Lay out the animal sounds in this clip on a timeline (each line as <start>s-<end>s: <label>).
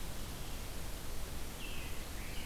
1.2s-2.5s: American Robin (Turdus migratorius)